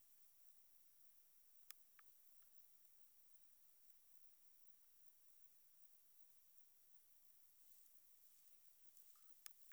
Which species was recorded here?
Metrioptera saussuriana